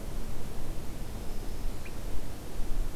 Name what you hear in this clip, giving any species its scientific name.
Setophaga virens